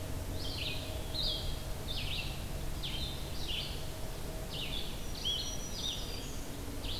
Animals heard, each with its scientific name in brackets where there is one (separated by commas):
Black-throated Green Warbler (Setophaga virens), Red-eyed Vireo (Vireo olivaceus)